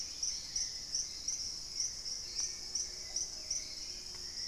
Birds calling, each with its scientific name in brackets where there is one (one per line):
Hauxwell's Thrush (Turdus hauxwelli)
Plumbeous Pigeon (Patagioenas plumbea)
Dusky-capped Greenlet (Pachysylvia hypoxantha)